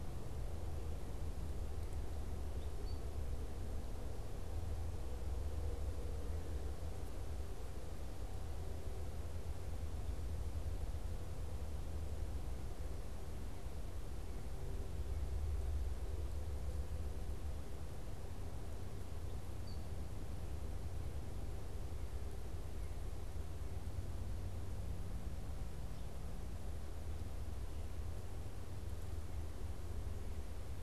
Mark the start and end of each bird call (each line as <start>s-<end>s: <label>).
1.9s-3.2s: Eastern Wood-Pewee (Contopus virens)
19.1s-20.2s: Eastern Wood-Pewee (Contopus virens)